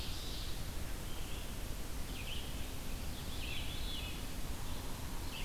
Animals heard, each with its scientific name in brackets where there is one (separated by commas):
Veery (Catharus fuscescens), Red-eyed Vireo (Vireo olivaceus), Ovenbird (Seiurus aurocapilla)